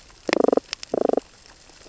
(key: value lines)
label: biophony, damselfish
recorder: SoundTrap 600 or HydroMoth